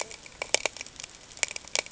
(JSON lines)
{"label": "ambient", "recorder": "HydroMoth"}